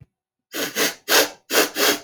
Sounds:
Sniff